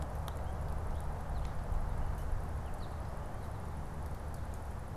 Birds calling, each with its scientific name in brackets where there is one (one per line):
American Goldfinch (Spinus tristis)